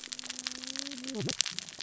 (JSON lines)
{"label": "biophony, cascading saw", "recorder": "SoundTrap 600 or HydroMoth"}